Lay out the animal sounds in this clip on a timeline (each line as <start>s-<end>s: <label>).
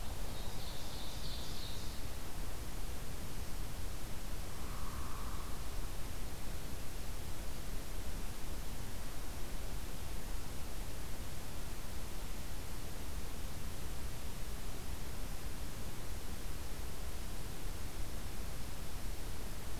0.1s-2.1s: Ovenbird (Seiurus aurocapilla)
4.5s-5.7s: Hairy Woodpecker (Dryobates villosus)